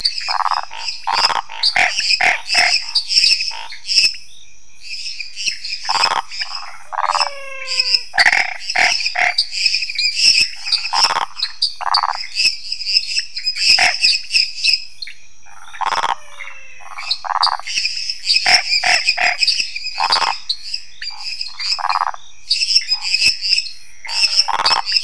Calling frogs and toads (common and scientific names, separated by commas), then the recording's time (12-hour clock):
lesser tree frog (Dendropsophus minutus), Pithecopus azureus, waxy monkey tree frog (Phyllomedusa sauvagii), Scinax fuscovarius, pointedbelly frog (Leptodactylus podicipinus), menwig frog (Physalaemus albonotatus)
10:30pm